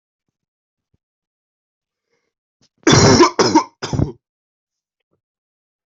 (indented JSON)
{
  "expert_labels": [
    {
      "quality": "good",
      "cough_type": "wet",
      "dyspnea": false,
      "wheezing": false,
      "stridor": false,
      "choking": false,
      "congestion": false,
      "nothing": true,
      "diagnosis": "lower respiratory tract infection",
      "severity": "mild"
    }
  ],
  "age": 26,
  "gender": "male",
  "respiratory_condition": false,
  "fever_muscle_pain": false,
  "status": "symptomatic"
}